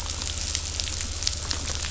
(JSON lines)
{"label": "anthrophony, boat engine", "recorder": "SoundTrap 500"}